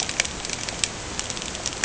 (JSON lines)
{"label": "ambient", "recorder": "HydroMoth"}